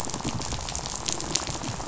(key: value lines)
label: biophony, rattle
recorder: SoundTrap 500